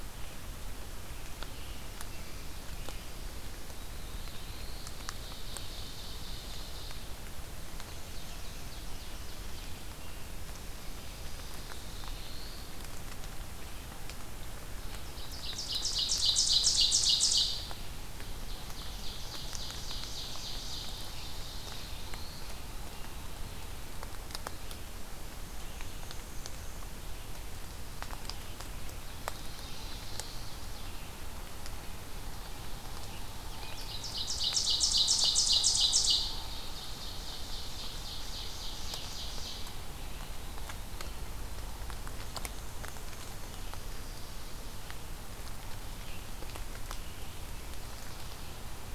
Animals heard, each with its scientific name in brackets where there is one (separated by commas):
Black-and-white Warbler (Mniotilta varia), Ovenbird (Seiurus aurocapilla), Black-throated Blue Warbler (Setophaga caerulescens), Red-eyed Vireo (Vireo olivaceus)